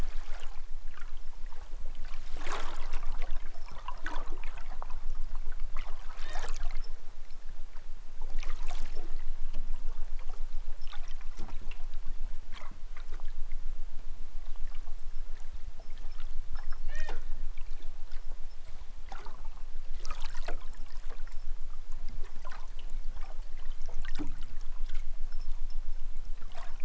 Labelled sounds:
16.7	17.3	killer whale, southern Alaska resident, 0.28 to 4.8 kHz

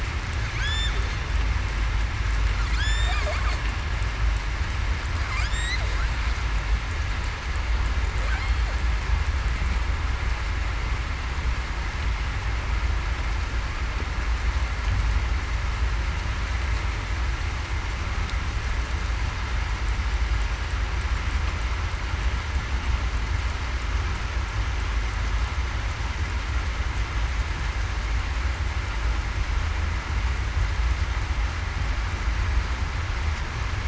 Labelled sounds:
0.6	0.9	killer whale, southern resident, 3.3 to 3.6 kHz
2.8	3.1	killer whale, southern resident, 1.5 to 7.5 kHz

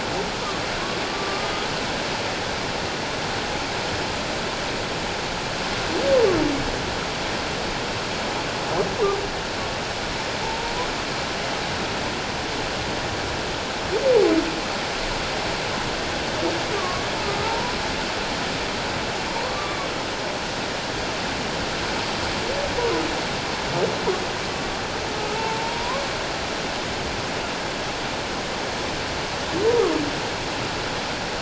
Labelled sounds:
1.1	1.5	humpback whale, 1.1 to 1.2 kHz
10.4	10.7	humpback whale, 0.81 to 0.97 kHz
16.7	17.8	humpback whale, 0.78 to 1.2 kHz
19.5	19.8	humpback whale, 1.1 to 1.3 kHz
25.4	26.0	humpback whale, 0.84 to 1.2 kHz

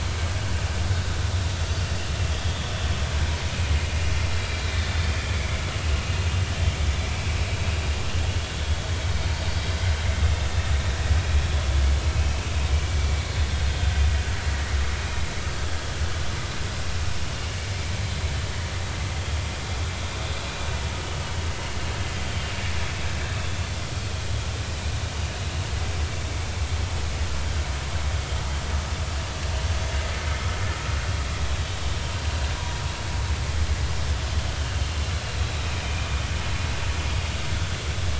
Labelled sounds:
0.9	1.2	vessel noise, 3.6 to 3.8 kHz
2.3	2.5	vessel noise, 3.2 to 3.4 kHz
4.8	5.6	vessel noise, 2.1 to 3.7 kHz
12.1	12.4	vessel noise, 2.5 to 2.7 kHz
35.8	36.1	vessel noise, 2.3 to 2.5 kHz

